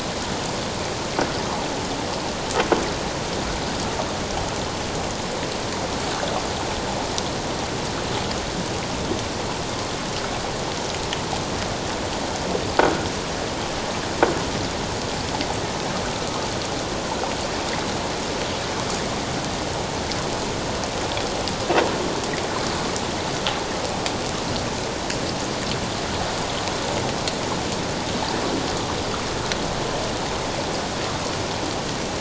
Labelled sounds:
12.8	13.1	croaking sound likely from a nearby submerged object, 1.4 to 1.5 kHz

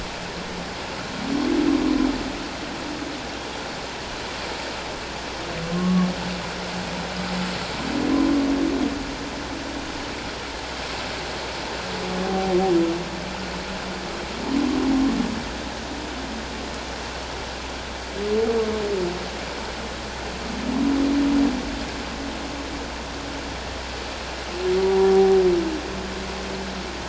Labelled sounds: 5.7	6.1	humpback whale, 1.0 to 1.2 kHz
12.2	12.5	humpback whale, 0.78 to 0.81 kHz
24.8	25.4	humpback whale, 0.78 to 1.0 kHz

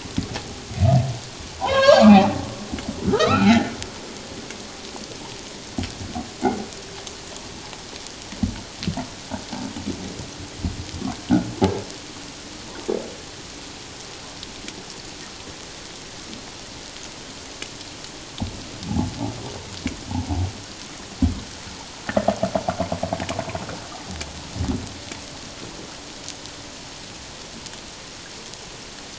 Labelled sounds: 1.6	2.5	humpback whale, 0.78 to 5.8 kHz
3.1	3.6	humpback whale, 1.1 to 2.0 kHz

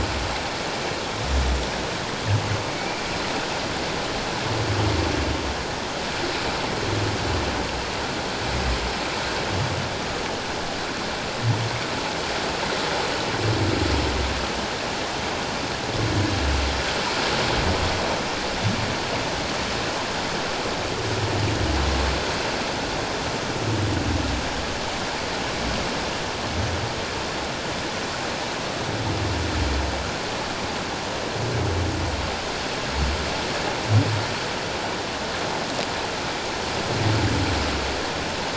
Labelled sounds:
2.7	3.0	humpback whale, 2.2 to 2.5 kHz

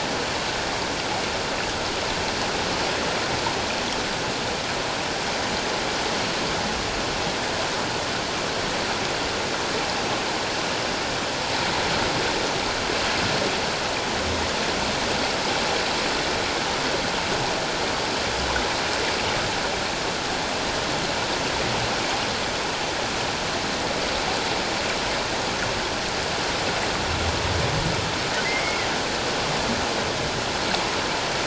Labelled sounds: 28.4	28.8	humpback whale, 1.9 to 2.2 kHz

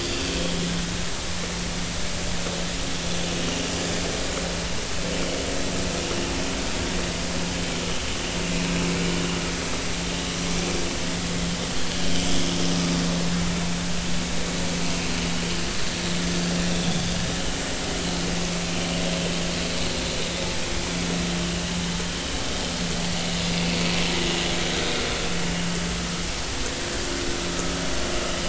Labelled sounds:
16.7	17.1	vessel noise, 3.2 to 3.7 kHz

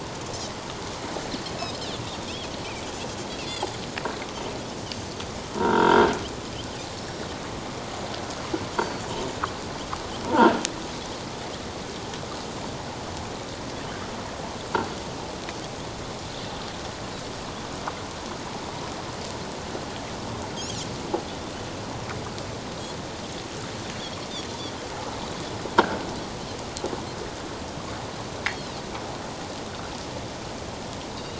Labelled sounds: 1.7	2.0	Pacific white-sided dolphin, 7.2 to 7.5 kHz
3.4	3.7	Pacific white-sided dolphin, 4.5 to 4.9 kHz
5.6	6.1	croaking sound likely from a nearby submerged object, 0.88 to 3.4 kHz
6.9	7.2	Pacific white-sided dolphin, 5.3 to 5.7 kHz
8.8	9.1	Pacific white-sided dolphin, 4.3 to 4.7 kHz
10.2	10.5	croaking sound likely from a nearby submerged object, 0.84 to 1.1 kHz
28.4	28.8	Pacific white-sided dolphin, 3.8 to 4.4 kHz
31.2	31.3	Pacific white-sided dolphin, 3.7 to 4.0 kHz

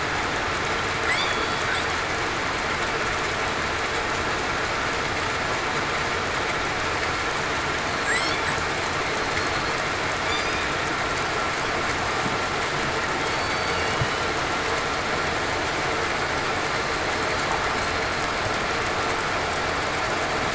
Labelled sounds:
1.2	1.6	killer whale, southern resident, 3.4 to 4.6 kHz
8.1	8.5	killer whale, southern resident, 7.4 to 8.0 kHz
10.3	10.6	killer whale, southern resident, 4.6 to 5.0 kHz
13.2	13.8	killer whale, southern resident, 4.4 to 4.6 kHz

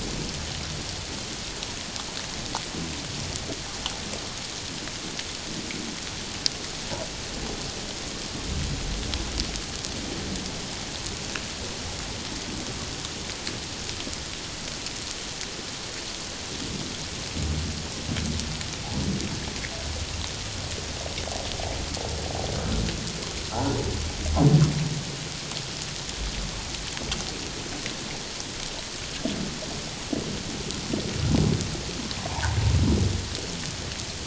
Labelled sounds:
32.3	32.6	humpback whale, 0.78 to 1.1 kHz

